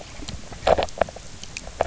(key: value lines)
label: biophony, knock croak
recorder: SoundTrap 300